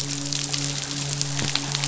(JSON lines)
{"label": "biophony, midshipman", "recorder": "SoundTrap 500"}